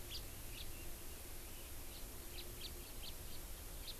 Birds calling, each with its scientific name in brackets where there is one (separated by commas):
Chinese Hwamei (Garrulax canorus), House Finch (Haemorhous mexicanus)